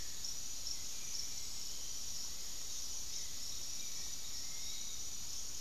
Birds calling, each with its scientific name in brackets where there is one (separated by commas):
Hauxwell's Thrush (Turdus hauxwelli), Piratic Flycatcher (Legatus leucophaius)